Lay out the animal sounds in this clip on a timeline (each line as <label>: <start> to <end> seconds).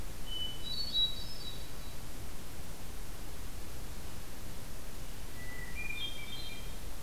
Hermit Thrush (Catharus guttatus): 0.0 to 2.2 seconds
Hermit Thrush (Catharus guttatus): 5.2 to 7.0 seconds